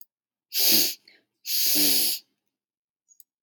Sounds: Sniff